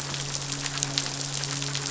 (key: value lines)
label: biophony, midshipman
recorder: SoundTrap 500